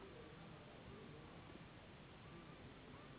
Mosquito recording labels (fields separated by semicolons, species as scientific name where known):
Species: Anopheles gambiae s.s.; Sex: female; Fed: unfed; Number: one; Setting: insect culture